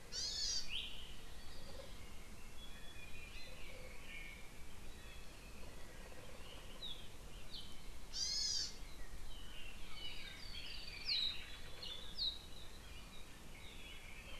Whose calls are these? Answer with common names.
Hawaii Amakihi